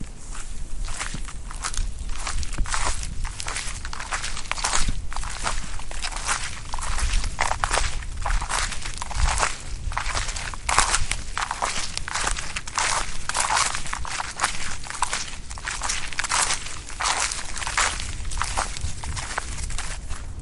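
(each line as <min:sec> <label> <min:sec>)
0:00.0 A person walking through a forest, making crackling sounds. 0:20.4
0:00.0 Background noise of wind and microphone interference. 0:20.4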